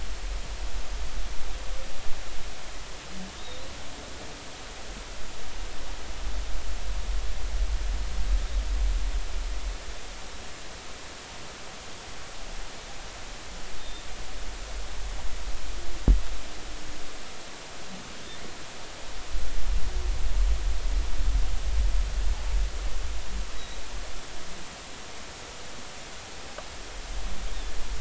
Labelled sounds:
3.3	3.6	humpback whale, 3.5 to 3.9 kHz
23.6	23.8	humpback whale, 3.8 to 4.0 kHz

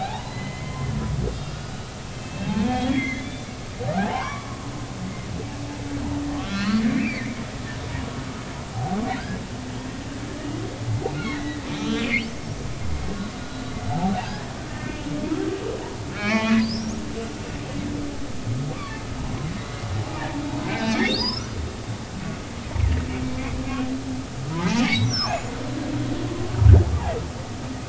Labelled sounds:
0.0	0.9	humpback whale, 0.80 to 4.1 kHz
1.3	3.5	humpback whale, 1.4 to 5.2 kHz
4.0	4.6	humpback whale, 0.80 to 1.2 kHz
6.3	7.3	humpback whale, 1.3 to 4.1 kHz
8.7	9.0	humpback whale, 0.80 to 0.83 kHz
11.2	12.3	humpback whale, 1.2 to 4.0 kHz
13.9	14.9	humpback whale, 0.80 to 5.3 kHz
16.1	17.0	humpback whale, 0.80 to 5.8 kHz
19.6	19.8	humpback whale, 3.7 to 4.0 kHz
20.6	21.5	humpback whale, 1.5 to 5.7 kHz
23.6	23.9	humpback whale, 1.3 to 1.7 kHz
24.6	25.4	humpback whale, 0.80 to 6.0 kHz

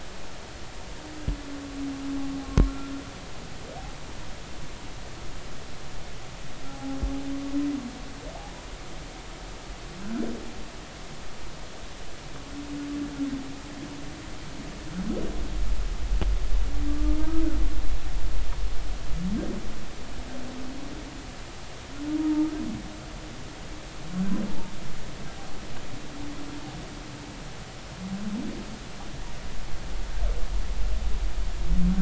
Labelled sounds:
6.7	7.0	humpback whale, 0.80 to 0.86 kHz
18.2	18.4	humpback whale, 1.2 to 1.3 kHz
24.5	24.7	humpback whale, 0.83 to 0.96 kHz

